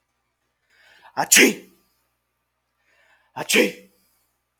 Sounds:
Sneeze